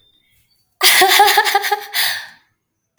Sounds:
Laughter